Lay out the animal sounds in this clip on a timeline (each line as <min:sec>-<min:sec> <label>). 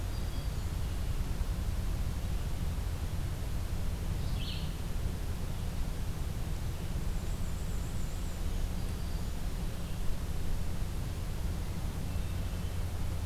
0:00.0-0:00.9 Hermit Thrush (Catharus guttatus)
0:04.0-0:04.8 Red-eyed Vireo (Vireo olivaceus)
0:06.9-0:08.7 Black-and-white Warbler (Mniotilta varia)
0:08.3-0:09.6 Black-throated Green Warbler (Setophaga virens)
0:11.9-0:13.0 Hermit Thrush (Catharus guttatus)